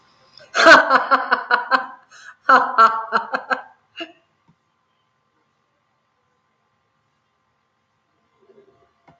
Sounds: Laughter